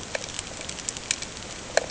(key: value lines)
label: ambient
recorder: HydroMoth